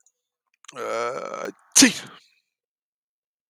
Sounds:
Sneeze